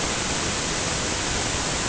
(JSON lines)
{"label": "ambient", "recorder": "HydroMoth"}